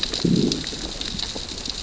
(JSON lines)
{"label": "biophony, growl", "recorder": "SoundTrap 600 or HydroMoth"}